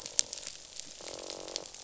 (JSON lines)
{"label": "biophony, croak", "recorder": "SoundTrap 500"}